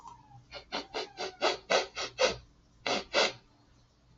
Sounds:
Sniff